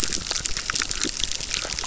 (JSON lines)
{"label": "biophony, chorus", "recorder": "SoundTrap 600"}